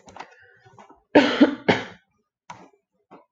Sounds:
Cough